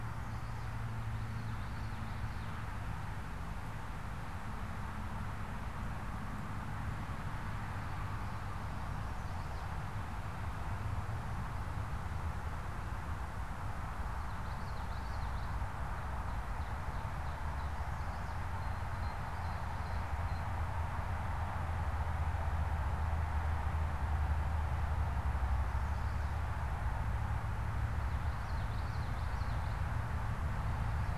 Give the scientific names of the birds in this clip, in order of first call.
Geothlypis trichas, Setophaga pensylvanica, Seiurus aurocapilla, Cyanocitta cristata